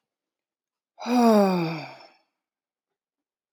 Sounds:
Sigh